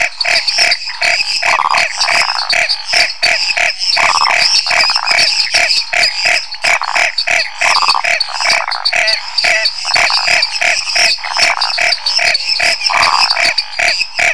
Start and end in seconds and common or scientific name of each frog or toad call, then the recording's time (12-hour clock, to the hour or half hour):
0.0	14.3	Chaco tree frog
0.0	14.3	lesser tree frog
0.0	14.3	dwarf tree frog
1.8	2.6	waxy monkey tree frog
3.9	5.2	waxy monkey tree frog
7.6	8.2	waxy monkey tree frog
12.9	13.4	waxy monkey tree frog
9:30pm